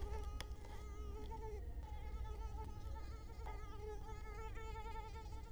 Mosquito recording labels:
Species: Culex quinquefasciatus; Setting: cup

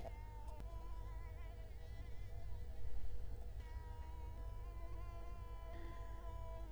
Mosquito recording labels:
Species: Culex quinquefasciatus; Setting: cup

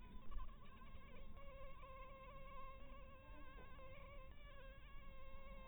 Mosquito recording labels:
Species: Anopheles harrisoni; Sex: female; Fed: blood-fed; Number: one; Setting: cup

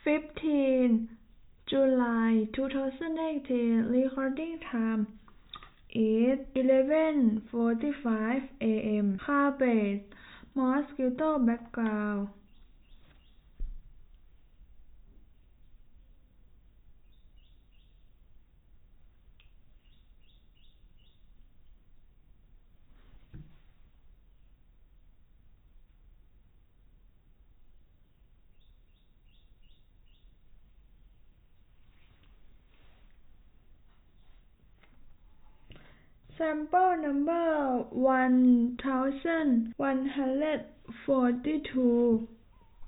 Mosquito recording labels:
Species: no mosquito; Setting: cup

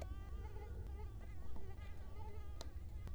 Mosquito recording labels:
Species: Culex quinquefasciatus; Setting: cup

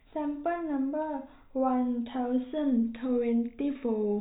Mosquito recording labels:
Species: no mosquito; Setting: cup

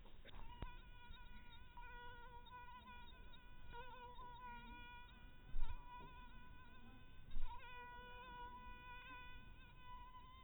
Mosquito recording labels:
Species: mosquito; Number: one; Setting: cup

